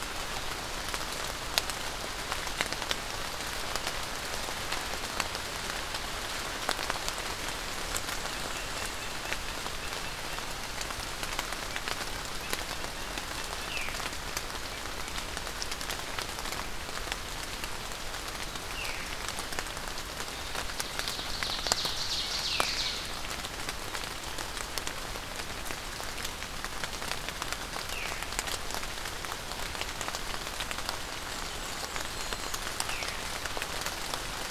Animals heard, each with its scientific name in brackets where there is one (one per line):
Ovenbird (Seiurus aurocapilla)
Black-and-white Warbler (Mniotilta varia)
Veery (Catharus fuscescens)